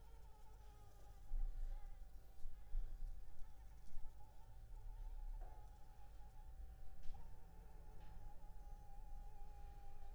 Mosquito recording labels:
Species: Anopheles arabiensis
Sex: female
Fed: unfed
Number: one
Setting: cup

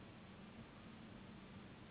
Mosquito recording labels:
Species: Anopheles gambiae s.s.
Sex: female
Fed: unfed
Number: one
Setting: insect culture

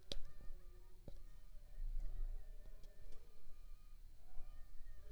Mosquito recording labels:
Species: Aedes aegypti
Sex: female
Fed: unfed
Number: one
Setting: cup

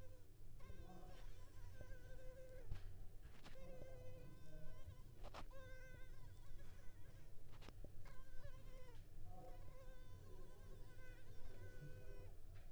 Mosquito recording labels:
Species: Culex pipiens complex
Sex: female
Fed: unfed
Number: one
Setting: cup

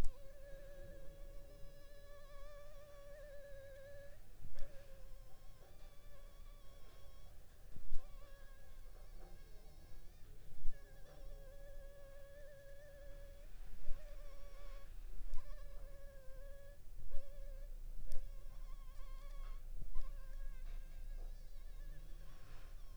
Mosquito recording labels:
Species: Anopheles funestus s.l.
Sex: female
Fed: unfed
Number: one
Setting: cup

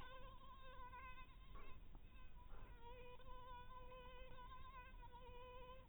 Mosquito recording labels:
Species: mosquito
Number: one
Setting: cup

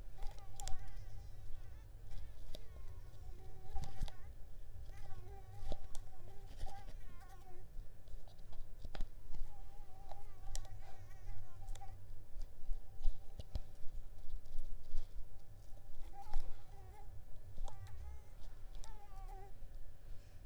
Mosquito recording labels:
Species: Mansonia africanus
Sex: female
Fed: unfed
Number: one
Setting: cup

